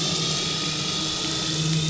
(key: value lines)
label: anthrophony, boat engine
recorder: SoundTrap 500